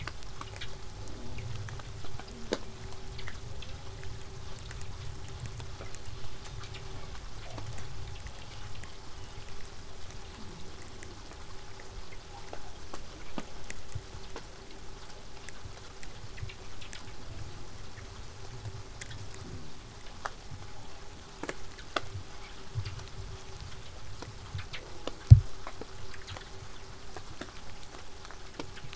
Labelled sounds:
19.0	24.0	vessel noise, 0 to 8.0 kHz

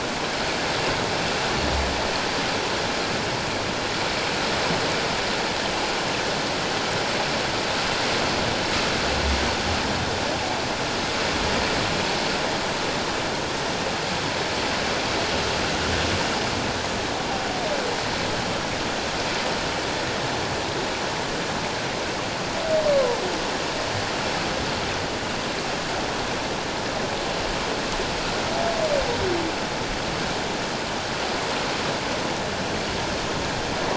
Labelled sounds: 22.9	23.2	humpback whale, 0.88 to 1.1 kHz

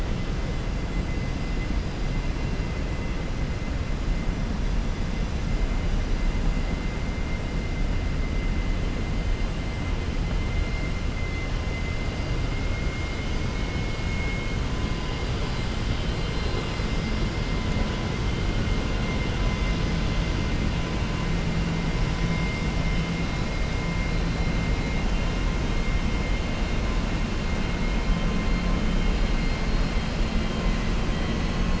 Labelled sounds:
15.9	16.8	vessel noise, 3.1 to 4.7 kHz

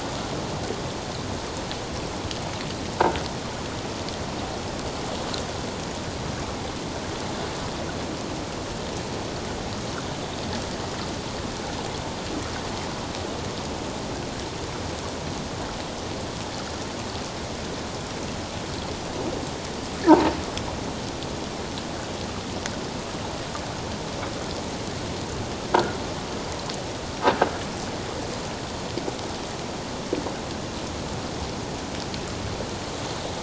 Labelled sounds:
20.1	20.3	croaking sound likely from a nearby submerged object, 0.84 to 1.0 kHz
25.7	26.0	croaking sound likely from a nearby submerged object, 1.3 to 1.5 kHz

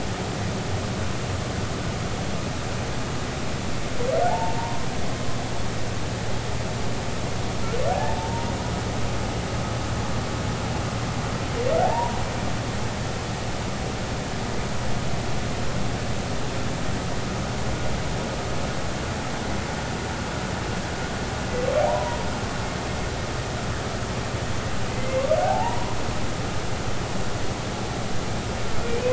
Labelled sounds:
4.3	4.9	humpback whale, 0.80 to 1.1 kHz
7.9	8.5	humpback whale, 0.80 to 0.99 kHz
11.8	12.2	humpback whale, 0.80 to 1.0 kHz
21.8	22.2	humpback whale, 0.80 to 1.0 kHz
24.9	26.0	humpback whale, 0.80 to 2.2 kHz

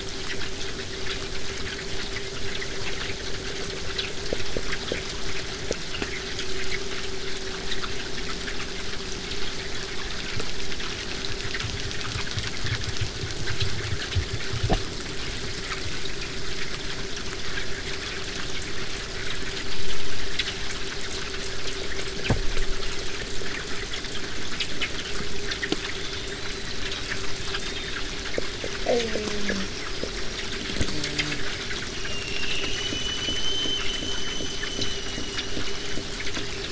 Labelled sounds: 25.9	28.1	killer whale, southern resident, 3.1 to 8.0 kHz
28.8	29.7	killer whale, southern resident, J pod, call S04, 0.08 to 5.1 kHz
29.5	30.5	killer whale, southern resident, 4.7 to 5.9 kHz
30.8	31.4	killer whale, southern resident, J pod, call S04, 0.15 to 8.0 kHz
31.8	36.7	killer whale, southern resident, 2.3 to 8.0 kHz

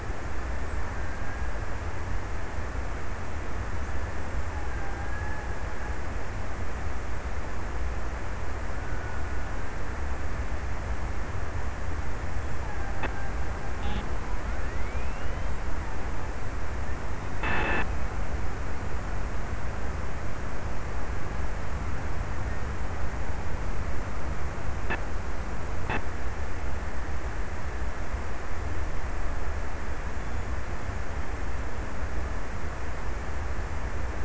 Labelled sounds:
0.7	2.0	killer whale, Bigg's (transient), 1.4 to 1.8 kHz
4.5	6.3	killer whale, Bigg's (transient), 0.66 to 2.0 kHz
12.2	14.9	killer whale, Bigg's (transient), 0.64 to 1.8 kHz

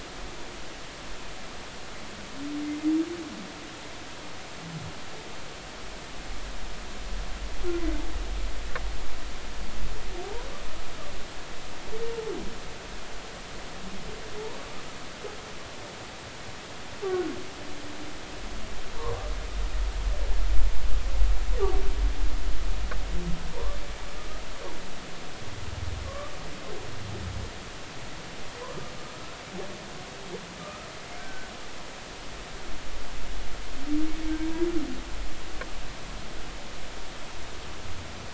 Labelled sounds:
18.9	19.3	humpback whale, 0.86 to 1.2 kHz
23.5	23.8	humpback whale, 0.90 to 1.2 kHz
26.0	26.3	humpback whale, 1.0 to 1.2 kHz
28.6	29.4	humpback whale, 0.96 to 1.4 kHz
30.6	31.5	humpback whale, 1.2 to 1.6 kHz

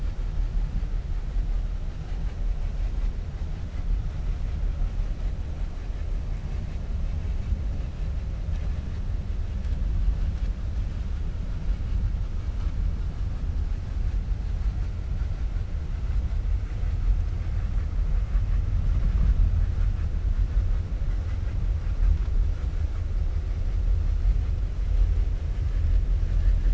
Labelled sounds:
26.3	26.7	vessel noise, 1.2 to 2.8 kHz

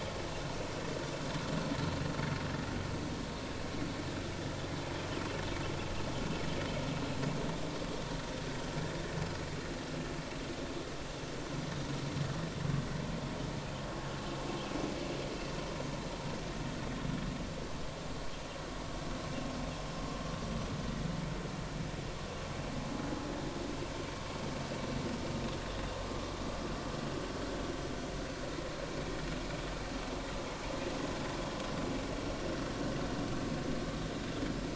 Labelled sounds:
25.7	25.9	vessel noise, 3.3 to 3.8 kHz

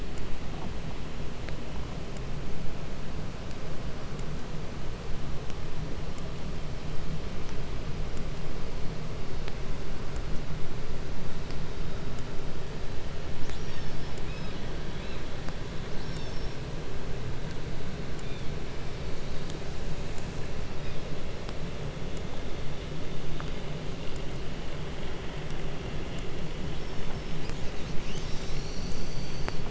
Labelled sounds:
13.3	14.3	killer whale, southern resident, call S36, 0.60 to 7.2 kHz
14.2	15.3	killer whale, 1.5 to 5.5 kHz
15.8	16.6	killer whale, southern resident, call S36, 1.2 to 6.9 kHz
18.1	18.6	killer whale, 1.9 to 7.0 kHz
20.6	21.1	killer whale, 1.7 to 5.4 kHz
26.3	27.4	killer whale, southern resident, call S36, 4.6 to 7.4 kHz
27.3	29.6	killer whale, southern resident, 1.5 to 8.0 kHz

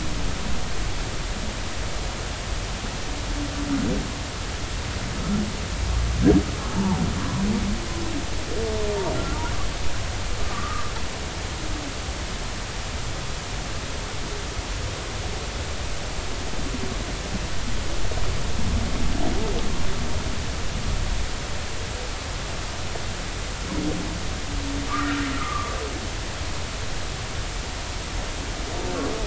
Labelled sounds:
6.7	7.0	humpback whale, 0.80 to 0.99 kHz
10.5	10.9	humpback whale, 1.1 to 1.3 kHz
24.9	25.7	humpback whale, 1.0 to 1.5 kHz

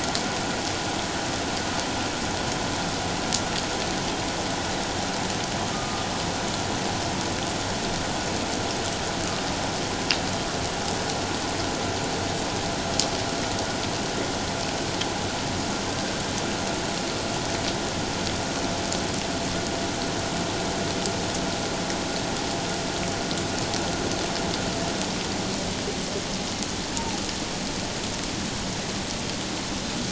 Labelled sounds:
5.7	6.1	humpback whale, 1.2 to 1.3 kHz

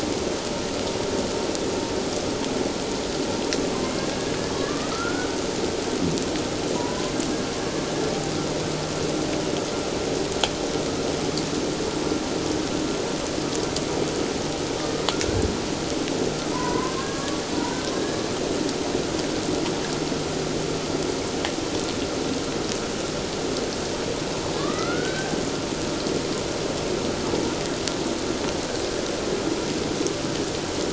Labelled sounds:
4.0	5.3	killer whale, Bigg's (transient), 1.1 to 1.7 kHz
6.8	7.1	killer whale, Bigg's (transient), 0.91 to 1.1 kHz
15.1	15.4	killer whale, Bigg's (transient), 1.3 to 1.6 kHz
16.5	17.4	killer whale, Bigg's (transient), 0.91 to 2.1 kHz
24.5	25.3	killer whale, Bigg's (transient), 1.0 to 2.2 kHz

